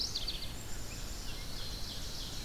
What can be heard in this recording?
Red-eyed Vireo, Black-capped Chickadee, Ovenbird